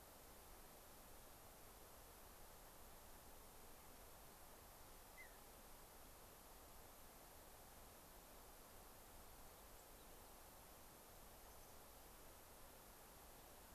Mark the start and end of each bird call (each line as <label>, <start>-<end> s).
Mountain Bluebird (Sialia currucoides), 5.1-5.4 s
Mountain Chickadee (Poecile gambeli), 11.4-11.7 s